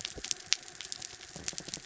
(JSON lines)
{"label": "biophony", "recorder": "SoundTrap 300"}
{"label": "anthrophony, mechanical", "recorder": "SoundTrap 300"}